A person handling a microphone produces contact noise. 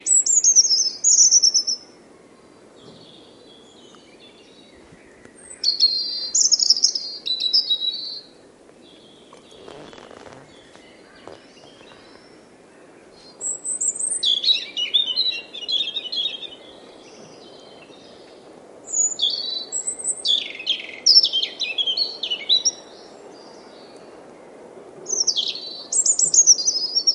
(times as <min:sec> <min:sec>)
0:09.6 0:12.5